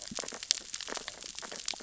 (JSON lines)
{"label": "biophony, sea urchins (Echinidae)", "recorder": "SoundTrap 600 or HydroMoth"}